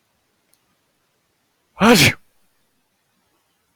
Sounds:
Sneeze